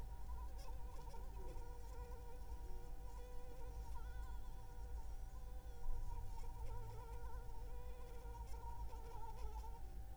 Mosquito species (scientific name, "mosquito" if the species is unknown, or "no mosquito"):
Anopheles arabiensis